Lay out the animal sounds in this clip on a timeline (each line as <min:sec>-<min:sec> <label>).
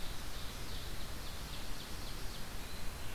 0:00.0-0:02.5 Ovenbird (Seiurus aurocapilla)
0:00.0-0:03.1 Red-eyed Vireo (Vireo olivaceus)
0:02.3-0:03.1 Hermit Thrush (Catharus guttatus)